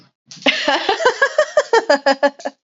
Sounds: Laughter